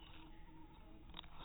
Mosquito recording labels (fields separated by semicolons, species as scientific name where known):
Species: mosquito; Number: one; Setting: cup